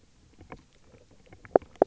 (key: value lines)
label: biophony, knock croak
recorder: SoundTrap 300